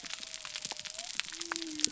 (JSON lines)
{"label": "biophony", "recorder": "SoundTrap 300"}